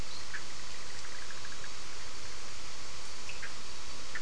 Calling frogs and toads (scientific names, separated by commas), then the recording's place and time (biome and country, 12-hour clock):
Boana leptolineata, Boana bischoffi, Sphaenorhynchus surdus
Atlantic Forest, Brazil, 12:00am